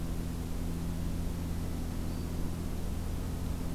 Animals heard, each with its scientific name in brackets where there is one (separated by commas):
Black-throated Green Warbler (Setophaga virens)